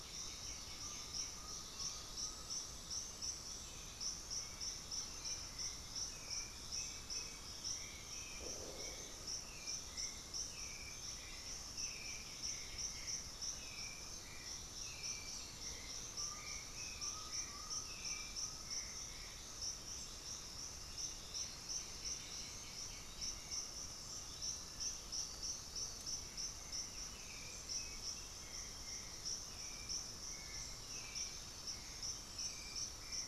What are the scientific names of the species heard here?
Pachyramphus polychopterus, Psarocolius angustifrons, Crypturellus undulatus, Turdus hauxwelli, unidentified bird, Dendroma erythroptera, Myrmophylax atrothorax